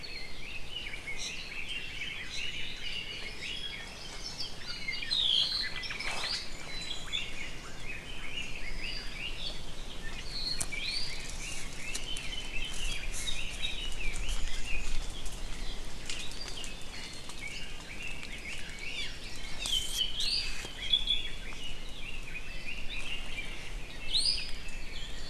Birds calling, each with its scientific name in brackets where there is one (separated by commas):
Apapane (Himatione sanguinea), Omao (Myadestes obscurus), Red-billed Leiothrix (Leiothrix lutea), Iiwi (Drepanis coccinea)